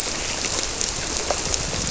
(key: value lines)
label: biophony
recorder: SoundTrap 300